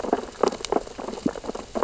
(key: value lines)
label: biophony, sea urchins (Echinidae)
recorder: SoundTrap 600 or HydroMoth